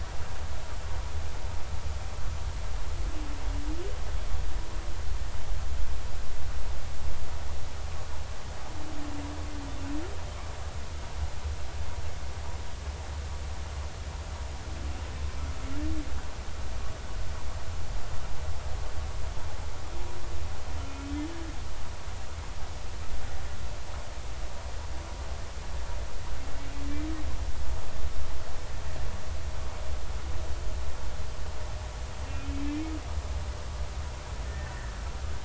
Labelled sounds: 32.3	32.6	humpback whale, 2.4 to 2.6 kHz
34.4	34.7	humpback whale, 1.7 to 1.9 kHz

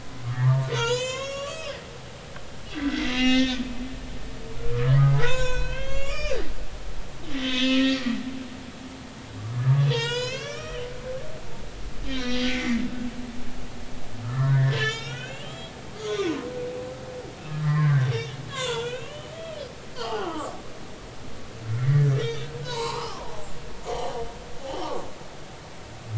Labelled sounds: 0.2	1.8	humpback whale, 0.86 to 7.8 kHz
2.7	3.7	humpback whale, 1.4 to 5.5 kHz
4.7	6.5	humpback whale, 0.80 to 6.9 kHz
7.5	8.2	humpback whale, 1.3 to 3.7 kHz
9.5	12.8	humpback whale, 0.86 to 7.2 kHz
14.2	16.4	humpback whale, 0.99 to 7.4 kHz
17.5	19.6	humpback whale, 0.86 to 5.6 kHz
20.0	20.5	humpback whale, 0.80 to 1.6 kHz
21.0	23.5	humpback whale, 0.80 to 4.1 kHz
23.8	25.0	humpback whale, 0.80 to 3.2 kHz

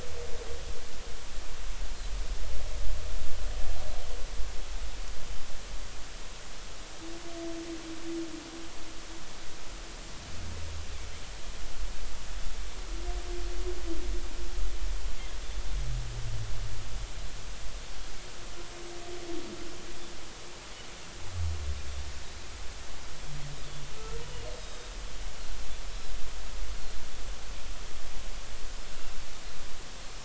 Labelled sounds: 24.5	24.9	Pacific white-sided dolphin, 3.6 to 5.2 kHz

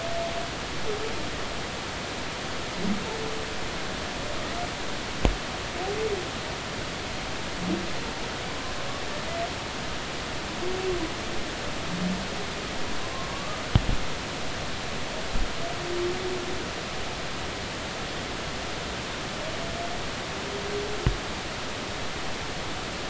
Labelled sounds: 13.3	13.6	humpback whale, 1.1 to 1.3 kHz

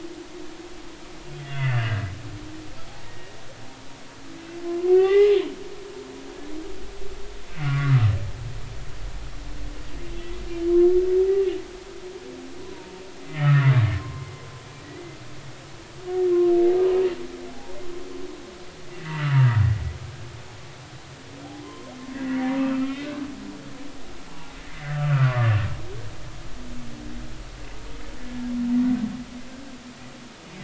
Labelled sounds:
1.5	2.0	humpback whale, 1.5 to 2.8 kHz
3.1	3.4	humpback whale, 1.8 to 1.9 kHz
4.6	5.3	humpback whale, 0.80 to 3.0 kHz
7.6	8.1	humpback whale, 1.1 to 1.5 kHz
12.6	12.9	humpback whale, 0.90 to 1.1 kHz
13.4	15.2	humpback whale, 0.99 to 2.1 kHz
18.9	19.3	humpback whale, 1.9 to 2.8 kHz
21.6	23.2	humpback whale, 0.96 to 3.2 kHz
24.6	25.6	humpback whale, 0.99 to 2.1 kHz

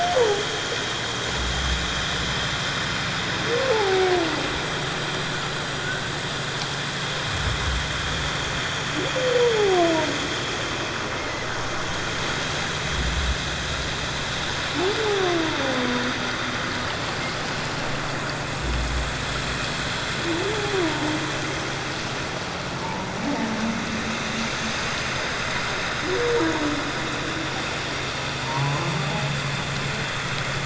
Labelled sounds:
0.1	0.4	humpback whale, 0.78 to 1.0 kHz
3.7	4.1	humpback whale, 0.78 to 0.97 kHz
9.6	9.8	humpback whale, 0.78 to 0.91 kHz
11.2	11.5	humpback whale, 1.9 to 2.2 kHz
22.8	23.1	humpback whale, 0.84 to 1.0 kHz
24.5	24.8	humpback whale, 6.2 to 6.5 kHz
28.4	28.9	humpback whale, 0.81 to 1.2 kHz

